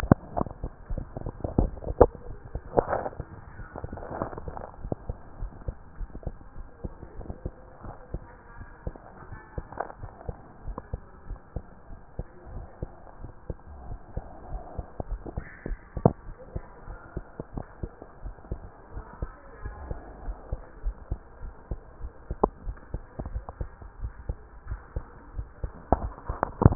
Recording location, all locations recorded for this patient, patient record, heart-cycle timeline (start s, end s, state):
tricuspid valve (TV)
aortic valve (AV)+pulmonary valve (PV)+tricuspid valve (TV)+mitral valve (MV)
#Age: Child
#Sex: Male
#Height: 127.0 cm
#Weight: 35.8 kg
#Pregnancy status: False
#Murmur: Absent
#Murmur locations: nan
#Most audible location: nan
#Systolic murmur timing: nan
#Systolic murmur shape: nan
#Systolic murmur grading: nan
#Systolic murmur pitch: nan
#Systolic murmur quality: nan
#Diastolic murmur timing: nan
#Diastolic murmur shape: nan
#Diastolic murmur grading: nan
#Diastolic murmur pitch: nan
#Diastolic murmur quality: nan
#Outcome: Normal
#Campaign: 2014 screening campaign
0.00	4.67	unannotated
4.67	4.82	diastole
4.82	4.94	S1
4.94	5.08	systole
5.08	5.16	S2
5.16	5.40	diastole
5.40	5.52	S1
5.52	5.66	systole
5.66	5.74	S2
5.74	5.98	diastole
5.98	6.10	S1
6.10	6.26	systole
6.26	6.36	S2
6.36	6.56	diastole
6.56	6.68	S1
6.68	6.84	systole
6.84	6.92	S2
6.92	7.18	diastole
7.18	7.29	S1
7.29	7.44	systole
7.44	7.54	S2
7.54	7.84	diastole
7.84	7.94	S1
7.94	8.12	systole
8.12	8.22	S2
8.22	8.58	diastole
8.58	8.68	S1
8.68	8.86	systole
8.86	8.94	S2
8.94	9.28	diastole
9.28	9.40	S1
9.40	9.56	systole
9.56	9.66	S2
9.66	10.00	diastole
10.00	10.12	S1
10.12	10.26	systole
10.26	10.36	S2
10.36	10.66	diastole
10.66	10.76	S1
10.76	10.92	systole
10.92	11.00	S2
11.00	11.28	diastole
11.28	11.40	S1
11.40	11.56	systole
11.56	11.64	S2
11.64	11.92	diastole
11.92	12.00	S1
12.00	12.18	systole
12.18	12.24	S2
12.24	12.52	diastole
12.52	12.64	S1
12.64	12.82	systole
12.82	12.90	S2
12.90	13.20	diastole
13.20	13.32	S1
13.32	13.48	systole
13.48	13.56	S2
13.56	13.86	diastole
13.86	13.98	S1
13.98	14.14	systole
14.14	14.24	S2
14.24	14.50	diastole
14.50	14.62	S1
14.62	14.76	systole
14.76	14.86	S2
14.86	15.10	diastole
15.10	15.20	S1
15.20	15.34	systole
15.34	15.44	S2
15.44	15.66	diastole
15.66	26.75	unannotated